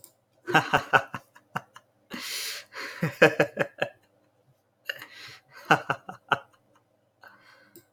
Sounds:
Laughter